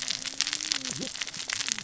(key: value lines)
label: biophony, cascading saw
recorder: SoundTrap 600 or HydroMoth